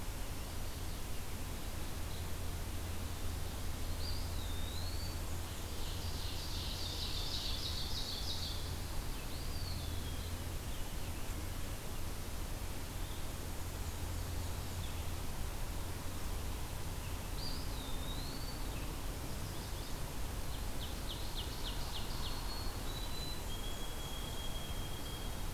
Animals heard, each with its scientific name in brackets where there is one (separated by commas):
Ovenbird (Seiurus aurocapilla), Eastern Wood-Pewee (Contopus virens), White-throated Sparrow (Zonotrichia albicollis), Chestnut-sided Warbler (Setophaga pensylvanica), Black-and-white Warbler (Mniotilta varia)